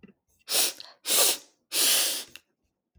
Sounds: Sniff